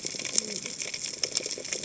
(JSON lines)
{"label": "biophony, cascading saw", "recorder": "HydroMoth"}